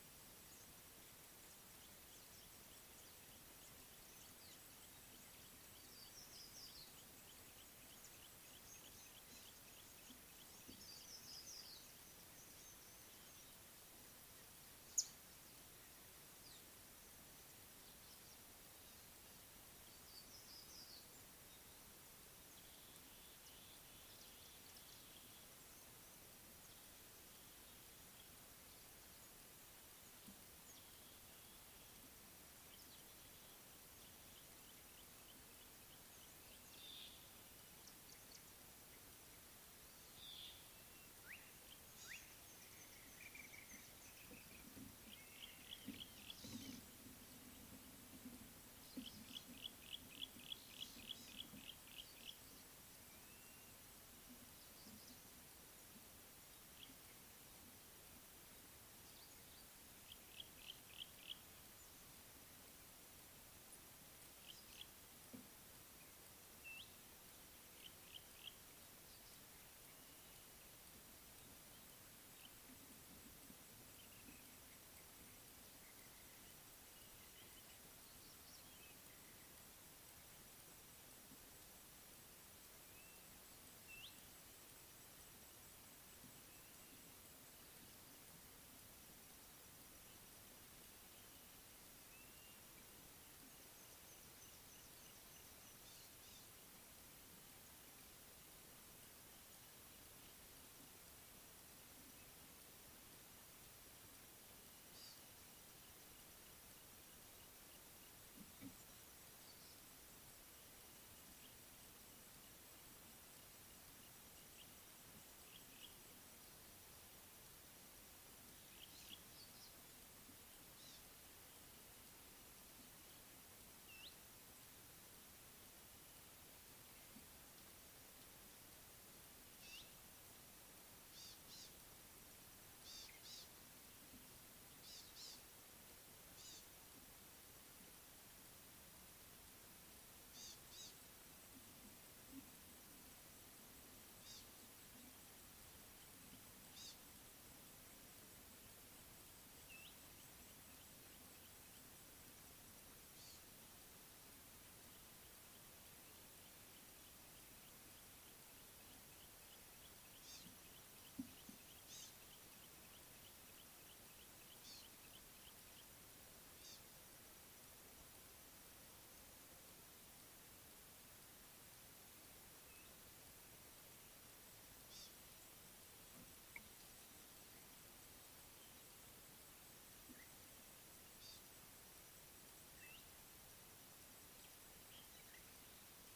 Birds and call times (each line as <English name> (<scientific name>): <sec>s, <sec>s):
Yellow-bellied Eremomela (Eremomela icteropygialis): 6.3s, 11.3s, 20.4s
Slate-colored Boubou (Laniarius funebris): 41.3s
Eastern Violet-backed Sunbird (Anthreptes orientalis): 42.0s, 120.9s, 131.2s, 132.9s, 135.0s, 140.4s, 144.3s, 146.8s, 160.3s, 161.9s, 164.6s, 166.7s, 174.9s, 181.3s
Black-throated Barbet (Tricholaema melanocephala): 43.4s
Yellow-breasted Apalis (Apalis flavida): 45.7s, 50.5s, 60.6s, 64.4s, 68.1s
Red-backed Scrub-Robin (Cercotrichas leucophrys): 66.7s, 84.0s, 124.0s, 149.8s